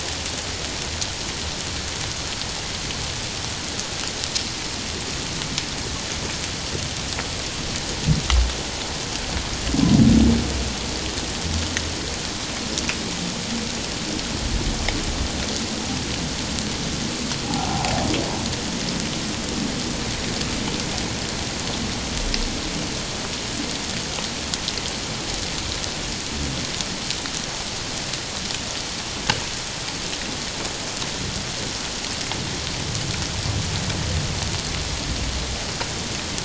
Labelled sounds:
17.7	18.1	humpback whale, 0.78 to 1.0 kHz

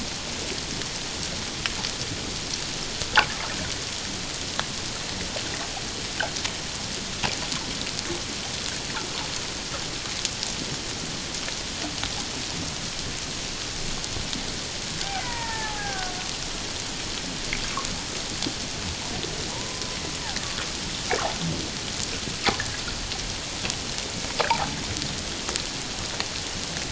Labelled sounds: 15.2	16.1	killer whale, Bigg's (transient), 0.78 to 2.1 kHz
19.5	20.0	killer whale, Bigg's (transient), 0.88 to 1.1 kHz
24.5	24.8	killer whale, Bigg's (transient), 0.78 to 1.1 kHz

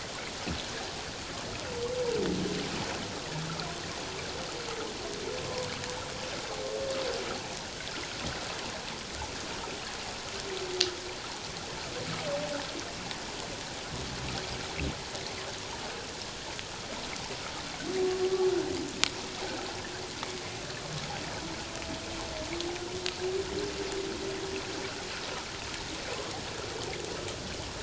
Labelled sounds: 5.4	5.7	humpback whale, 0.91 to 1.2 kHz

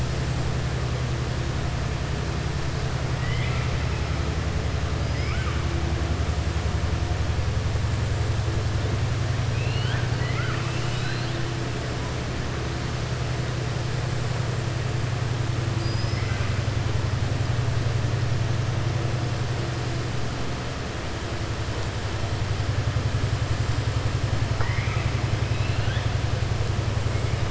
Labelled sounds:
3.1	3.7	killer whale, southern resident, 1.3 to 3.6 kHz
5.1	5.6	killer whale, southern resident, 1.2 to 3.3 kHz
9.5	11.4	killer whale, southern resident, 1.2 to 5.2 kHz
24.5	25.1	killer whale, southern resident, 0.49 to 3.0 kHz
25.4	26.1	killer whale, southern resident, 1.5 to 4.2 kHz

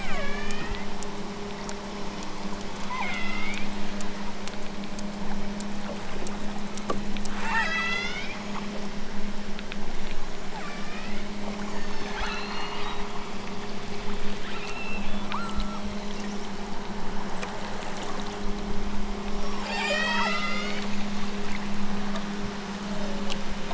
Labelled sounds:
0.0	0.9	killer whale, southern Alaska resident, 0.83 to 5.0 kHz
2.8	3.7	killer whale, southern Alaska resident, 0.74 to 6.3 kHz
7.3	8.3	killer whale, southern Alaska resident, 0.64 to 8.0 kHz
10.4	11.3	killer whale, southern Alaska resident, 0.83 to 5.3 kHz
11.7	13.1	killer whale, southern Alaska resident, 1.2 to 7.1 kHz
14.5	16.0	killer whale, southern Alaska resident, 0.74 to 8.0 kHz
19.6	21.0	killer whale, southern Alaska resident, 0.46 to 8.0 kHz

